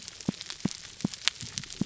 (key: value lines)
label: biophony, pulse
recorder: SoundTrap 300